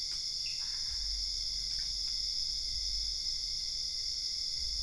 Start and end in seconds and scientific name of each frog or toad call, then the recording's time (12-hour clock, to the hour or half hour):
0.6	1.5	Boana albopunctata
3:30am